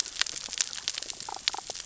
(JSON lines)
{"label": "biophony, damselfish", "recorder": "SoundTrap 600 or HydroMoth"}